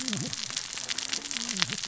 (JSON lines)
{"label": "biophony, cascading saw", "recorder": "SoundTrap 600 or HydroMoth"}